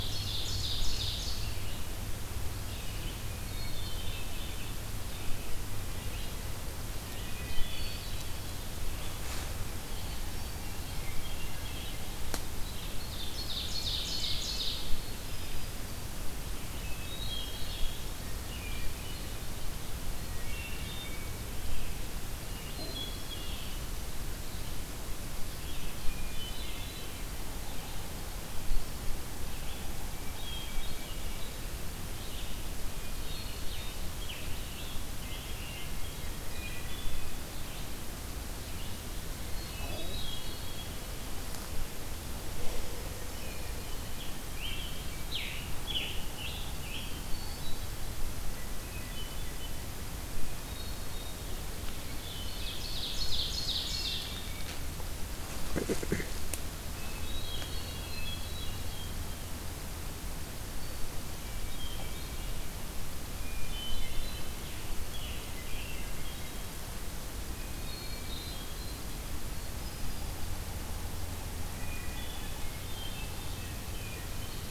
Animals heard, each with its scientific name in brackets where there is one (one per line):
Ovenbird (Seiurus aurocapilla)
Scarlet Tanager (Piranga olivacea)
Hermit Thrush (Catharus guttatus)
Yellow-bellied Sapsucker (Sphyrapicus varius)
Red-eyed Vireo (Vireo olivaceus)